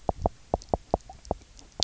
{"label": "biophony, knock", "recorder": "SoundTrap 300"}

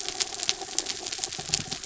{"label": "anthrophony, mechanical", "recorder": "SoundTrap 300"}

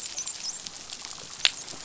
{"label": "biophony, dolphin", "recorder": "SoundTrap 500"}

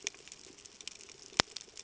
{"label": "ambient", "recorder": "HydroMoth"}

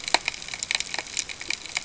{"label": "ambient", "recorder": "HydroMoth"}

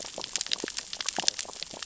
{"label": "biophony, sea urchins (Echinidae)", "recorder": "SoundTrap 600 or HydroMoth"}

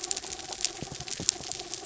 {"label": "anthrophony, mechanical", "recorder": "SoundTrap 300"}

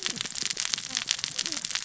{"label": "biophony, cascading saw", "recorder": "SoundTrap 600 or HydroMoth"}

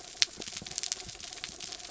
{"label": "anthrophony, mechanical", "recorder": "SoundTrap 300"}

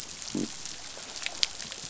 {"label": "biophony", "recorder": "SoundTrap 500"}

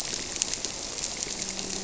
{"label": "biophony", "recorder": "SoundTrap 300"}
{"label": "biophony, grouper", "recorder": "SoundTrap 300"}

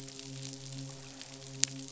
{"label": "biophony, midshipman", "recorder": "SoundTrap 500"}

